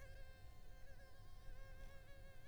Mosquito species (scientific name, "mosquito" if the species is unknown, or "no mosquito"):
Culex pipiens complex